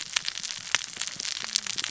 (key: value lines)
label: biophony, cascading saw
recorder: SoundTrap 600 or HydroMoth